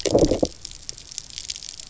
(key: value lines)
label: biophony, low growl
recorder: SoundTrap 300